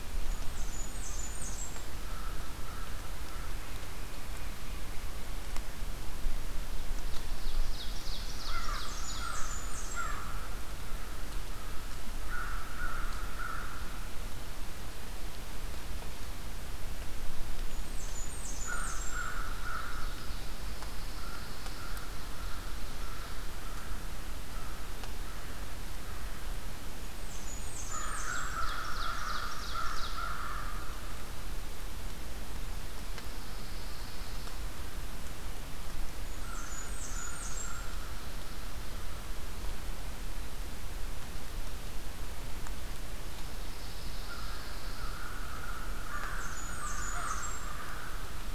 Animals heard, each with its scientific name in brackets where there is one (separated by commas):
American Crow (Corvus brachyrhynchos), Blackburnian Warbler (Setophaga fusca), Ovenbird (Seiurus aurocapilla), Pine Warbler (Setophaga pinus)